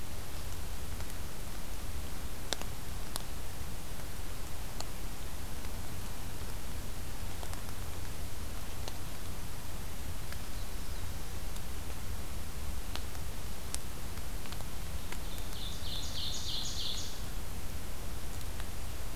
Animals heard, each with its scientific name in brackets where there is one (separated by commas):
Ovenbird (Seiurus aurocapilla), Black-throated Blue Warbler (Setophaga caerulescens)